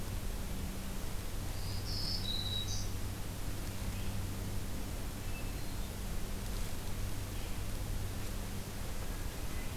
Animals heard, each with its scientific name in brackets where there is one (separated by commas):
Black-throated Green Warbler (Setophaga virens), Red-eyed Vireo (Vireo olivaceus)